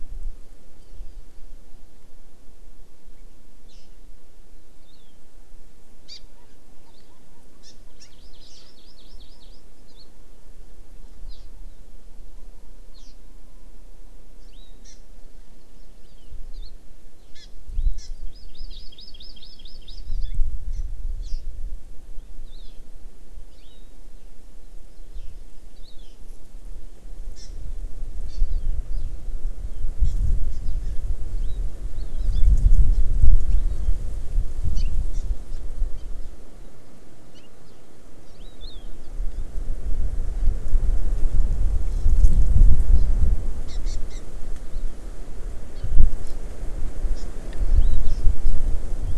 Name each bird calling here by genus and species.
Chlorodrepanis virens, Garrulax canorus